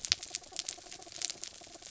{"label": "anthrophony, mechanical", "recorder": "SoundTrap 300"}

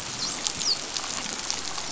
{"label": "biophony, dolphin", "recorder": "SoundTrap 500"}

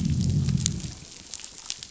{"label": "biophony, growl", "recorder": "SoundTrap 500"}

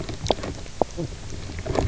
{"label": "biophony, knock croak", "recorder": "SoundTrap 300"}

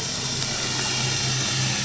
{"label": "anthrophony, boat engine", "recorder": "SoundTrap 500"}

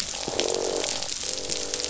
{"label": "biophony, croak", "recorder": "SoundTrap 500"}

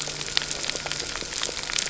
{"label": "anthrophony, boat engine", "recorder": "SoundTrap 300"}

